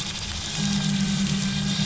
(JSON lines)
{"label": "anthrophony, boat engine", "recorder": "SoundTrap 500"}